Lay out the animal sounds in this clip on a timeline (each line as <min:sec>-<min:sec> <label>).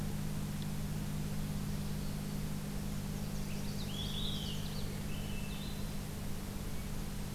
0:02.8-0:04.6 Nashville Warbler (Leiothlypis ruficapilla)
0:03.7-0:04.7 Olive-sided Flycatcher (Contopus cooperi)
0:04.8-0:06.0 Swainson's Thrush (Catharus ustulatus)